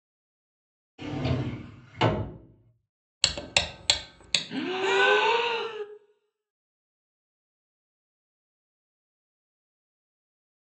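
At the start, a drawer opens or closes. Then about 3 seconds in, ticking is audible. After that, about 4 seconds in, someone gasps.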